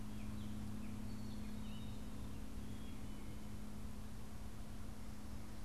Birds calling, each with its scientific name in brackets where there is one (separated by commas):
Black-capped Chickadee (Poecile atricapillus), Gray Catbird (Dumetella carolinensis)